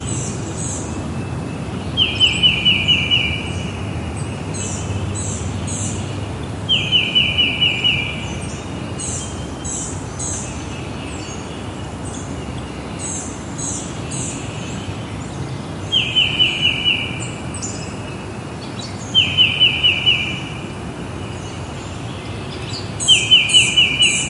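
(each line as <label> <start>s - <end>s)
A bird chirps repeatedly in the distance. 0.0s - 1.1s
Multiple birds chirp. 0.0s - 24.3s
A bird chirps loudly and repeatedly in a sharp tone. 2.0s - 3.5s
A bird chirps repeatedly in the distance. 4.4s - 6.1s
A bird chirps loudly and repeatedly in a sharp tone. 6.7s - 8.2s
A bird chirps repeatedly in the distance. 8.9s - 10.6s
A bird chirps repeatedly in the distance. 12.9s - 14.5s
A bird chirps loudly and repeatedly in a sharp tone. 15.9s - 17.1s
A bird chirps loudly and repeatedly in a sharp tone. 19.1s - 20.4s
A bird chirps loudly and repeatedly in a sharp tone. 23.0s - 24.3s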